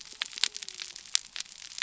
{"label": "biophony", "recorder": "SoundTrap 300"}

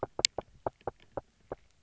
{"label": "biophony, knock", "recorder": "SoundTrap 300"}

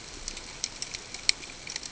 {"label": "ambient", "recorder": "HydroMoth"}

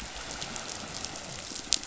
{"label": "biophony", "recorder": "SoundTrap 500"}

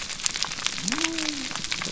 {"label": "biophony", "recorder": "SoundTrap 300"}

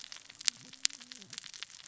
{"label": "biophony, cascading saw", "recorder": "SoundTrap 600 or HydroMoth"}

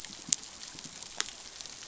{"label": "biophony, dolphin", "recorder": "SoundTrap 500"}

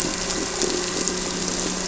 {"label": "anthrophony, boat engine", "recorder": "SoundTrap 300"}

